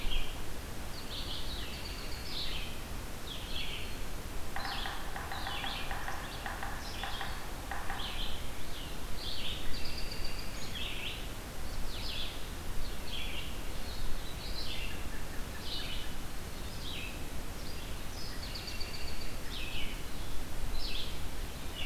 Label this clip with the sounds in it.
Red-eyed Vireo, American Robin, Yellow-bellied Sapsucker